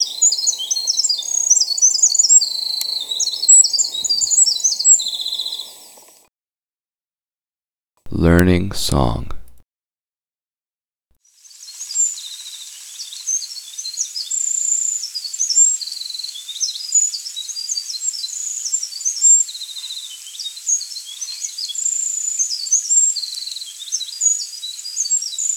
Are dogs barking?
no